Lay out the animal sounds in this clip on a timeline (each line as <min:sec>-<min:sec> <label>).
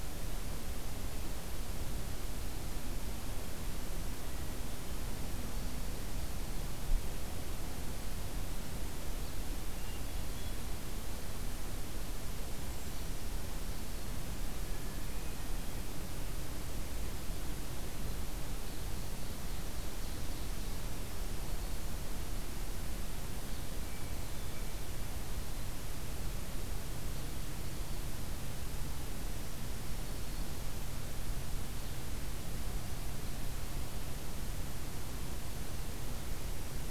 0:09.7-0:10.6 Hermit Thrush (Catharus guttatus)
0:12.2-0:13.0 Golden-crowned Kinglet (Regulus satrapa)
0:18.8-0:21.0 Ovenbird (Seiurus aurocapilla)
0:23.8-0:24.8 Hermit Thrush (Catharus guttatus)
0:27.5-0:28.2 Black-throated Green Warbler (Setophaga virens)